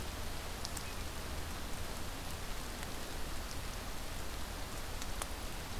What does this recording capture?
forest ambience